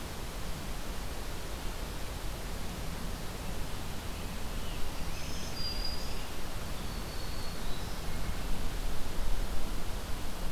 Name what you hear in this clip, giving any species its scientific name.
Setophaga virens